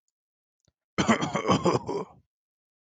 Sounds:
Cough